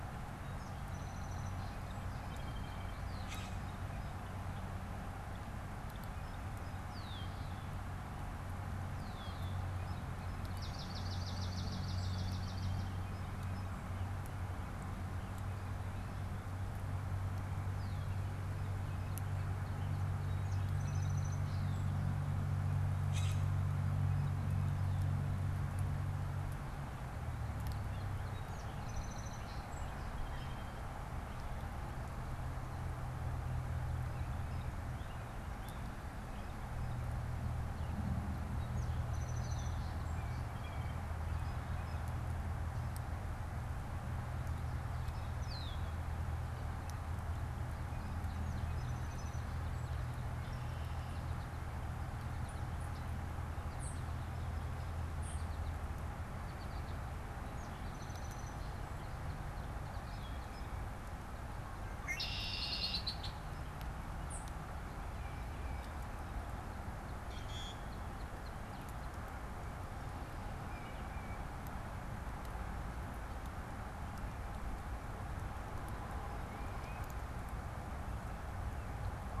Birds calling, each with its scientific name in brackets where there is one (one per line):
unidentified bird
Red-winged Blackbird (Agelaius phoeniceus)
Song Sparrow (Melospiza melodia)
Common Grackle (Quiscalus quiscula)
Northern Cardinal (Cardinalis cardinalis)
Tufted Titmouse (Baeolophus bicolor)
American Goldfinch (Spinus tristis)
Swamp Sparrow (Melospiza georgiana)